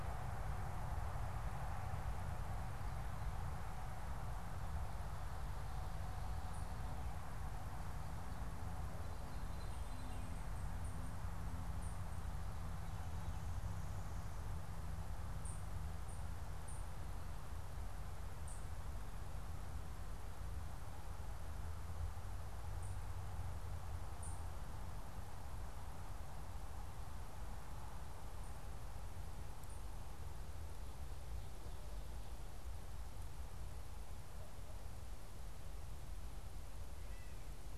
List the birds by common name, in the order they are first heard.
Veery, unidentified bird, Gray Catbird